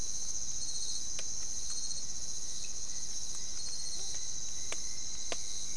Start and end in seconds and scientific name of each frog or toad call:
none